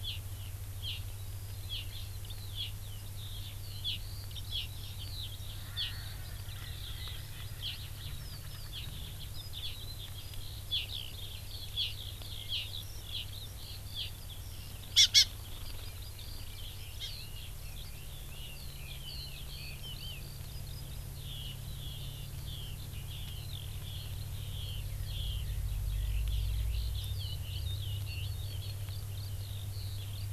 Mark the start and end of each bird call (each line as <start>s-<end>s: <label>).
0.1s-0.2s: Hawaii Amakihi (Chlorodrepanis virens)
0.8s-1.0s: Hawaii Amakihi (Chlorodrepanis virens)
1.2s-30.3s: Eurasian Skylark (Alauda arvensis)
1.7s-1.9s: Hawaii Amakihi (Chlorodrepanis virens)
2.6s-2.8s: Hawaii Amakihi (Chlorodrepanis virens)
3.9s-4.0s: Hawaii Amakihi (Chlorodrepanis virens)
4.5s-4.7s: Hawaii Amakihi (Chlorodrepanis virens)
5.6s-9.0s: Erckel's Francolin (Pternistis erckelii)
5.8s-6.0s: Hawaii Amakihi (Chlorodrepanis virens)
7.7s-7.9s: Hawaii Amakihi (Chlorodrepanis virens)
8.7s-8.9s: Hawaii Amakihi (Chlorodrepanis virens)
9.7s-9.8s: Hawaii Amakihi (Chlorodrepanis virens)
10.7s-10.9s: Hawaii Amakihi (Chlorodrepanis virens)
11.8s-12.0s: Hawaii Amakihi (Chlorodrepanis virens)
12.5s-12.7s: Hawaii Amakihi (Chlorodrepanis virens)
13.2s-13.3s: Hawaii Amakihi (Chlorodrepanis virens)
14.0s-14.2s: Hawaii Amakihi (Chlorodrepanis virens)
15.0s-15.3s: Hawaii Amakihi (Chlorodrepanis virens)
17.0s-17.1s: Hawaii Amakihi (Chlorodrepanis virens)
18.3s-20.3s: Red-billed Leiothrix (Leiothrix lutea)